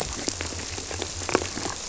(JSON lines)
{"label": "biophony", "recorder": "SoundTrap 300"}